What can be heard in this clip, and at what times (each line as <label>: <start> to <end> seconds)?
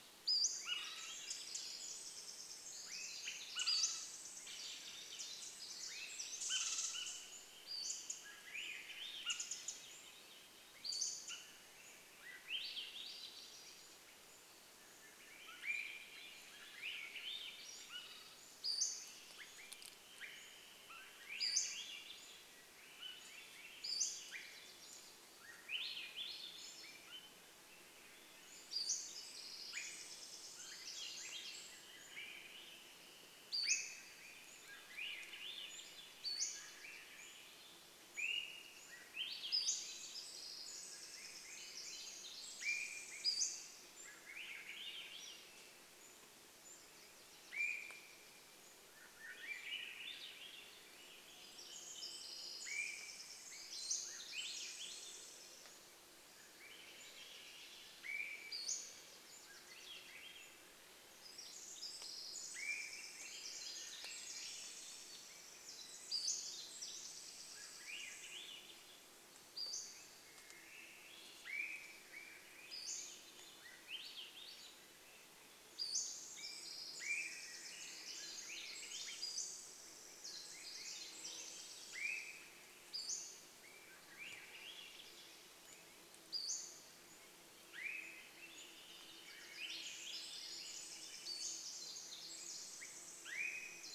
Swainson's Thrush song: 0 to 2 seconds
unidentified bird chip note: 0 to 2 seconds
Pacific-slope Flycatcher call: 0 to 4 seconds
Pacific Wren song: 0 to 8 seconds
Swainson's Thrush call: 0 to 12 seconds
Swainson's Thrush song: 4 to 6 seconds
unidentified bird chip note: 4 to 6 seconds
Pacific-slope Flycatcher call: 6 to 8 seconds
Swainson's Thrush song: 8 to 10 seconds
unidentified bird chip note: 8 to 12 seconds
Pacific-slope Flycatcher call: 10 to 26 seconds
Swainson's Thrush song: 12 to 18 seconds
Swainson's Thrush call: 16 to 22 seconds
unidentified bird chip note: 18 to 20 seconds
Swainson's Thrush song: 20 to 28 seconds
Swainson's Thrush call: 24 to 30 seconds
Pacific-slope Flycatcher call: 28 to 30 seconds
Pacific Wren song: 28 to 32 seconds
insect buzz: 30 to 34 seconds
Swainson's Thrush song: 30 to 46 seconds
Pacific-slope Flycatcher call: 32 to 34 seconds
Swainson's Thrush call: 32 to 34 seconds
Pacific-slope Flycatcher call: 36 to 40 seconds
Swainson's Thrush call: 38 to 40 seconds
Pacific Wren song: 38 to 44 seconds
insect buzz: 40 to 44 seconds
Swainson's Thrush call: 42 to 44 seconds
Pacific-slope Flycatcher call: 42 to 54 seconds
Swainson's Thrush call: 46 to 48 seconds
Wilson's Warbler song: 46 to 48 seconds
Swainson's Thrush song: 48 to 52 seconds
Pacific Wren song: 50 to 56 seconds
insect buzz: 50 to 58 seconds
Swainson's Thrush call: 52 to 54 seconds
Swainson's Thrush song: 54 to 86 seconds
Pacific-slope Flycatcher call: 56 to 60 seconds
Wilson's Warbler song: 56 to 60 seconds
Swainson's Thrush call: 58 to 60 seconds
Pacific Wren song: 60 to 70 seconds
Swainson's Thrush call: 62 to 64 seconds
Pacific-slope Flycatcher call: 66 to 70 seconds
insect buzz: 68 to 78 seconds
Swainson's Thrush call: 70 to 72 seconds
Pacific-slope Flycatcher call: 72 to 76 seconds
Swainson's Thrush call: 76 to 78 seconds
Pacific Wren song: 76 to 82 seconds
Pacific-slope Flycatcher call: 78 to 80 seconds
Common Raven call: 80 to 82 seconds
Swainson's Thrush call: 80 to 84 seconds
Pacific-slope Flycatcher call: 82 to 92 seconds
insect buzz: 84 to 94 seconds
Swainson's Thrush call: 86 to 88 seconds
Wilson's Warbler song: 88 to 90 seconds
Swainson's Thrush song: 88 to 92 seconds
Pacific Wren song: 88 to 94 seconds
Swainson's Thrush call: 92 to 94 seconds